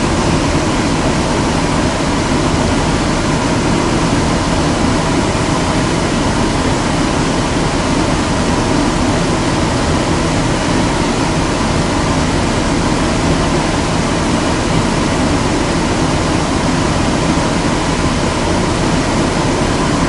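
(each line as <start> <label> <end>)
0.0 Noise. 20.1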